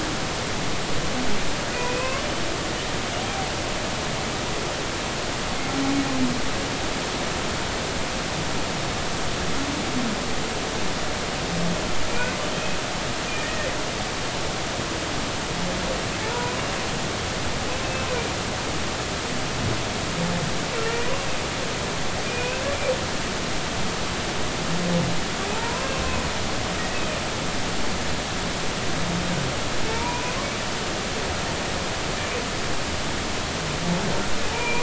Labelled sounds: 1.7	2.2	humpback whale, 0.99 to 2.7 kHz
13.4	13.7	humpback whale, 1.7 to 1.9 kHz
16.3	16.6	humpback whale, 0.93 to 1.5 kHz
20.8	21.1	humpback whale, 1.8 to 2.0 kHz
22.3	22.6	humpback whale, 2.3 to 2.7 kHz
25.5	26.0	humpback whale, 0.80 to 2.7 kHz
26.9	27.2	humpback whale, 2.4 to 2.7 kHz
29.9	30.3	humpback whale, 0.86 to 2.5 kHz
34.5	34.8	humpback whale, 0.83 to 2.5 kHz

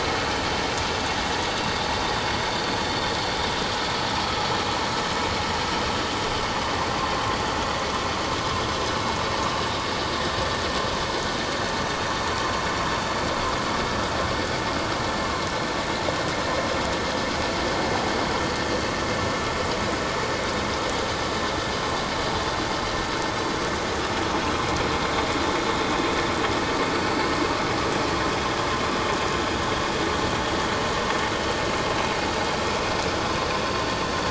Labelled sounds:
1.3	1.6	vessel noise, 4.6 to 4.7 kHz
25.8	26.1	vessel noise, 3.5 to 3.7 kHz

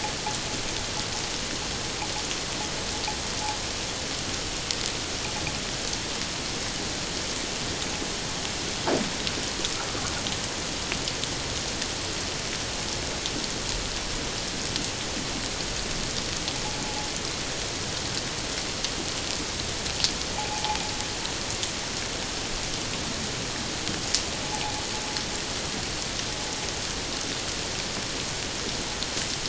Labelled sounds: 16.8	17.1	vessel noise, 0.78 to 0.91 kHz
20.3	20.8	vessel noise, 0.78 to 0.94 kHz

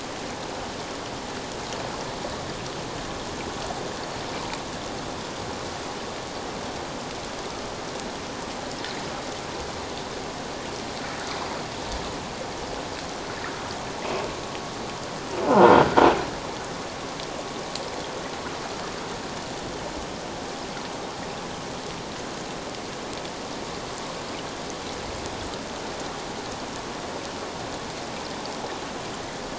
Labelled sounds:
15.5	15.7	croaking sound likely from a nearby submerged object, 1.4 to 1.5 kHz

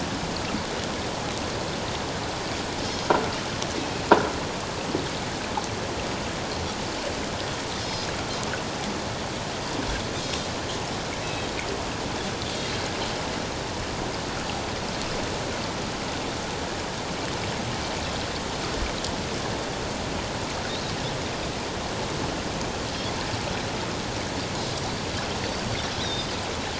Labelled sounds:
7.8	8.1	Pacific white-sided dolphin, 5.0 to 5.2 kHz
11.2	11.5	Pacific white-sided dolphin, 2.5 to 3.9 kHz
26.0	26.3	Pacific white-sided dolphin, 3.2 to 4.0 kHz

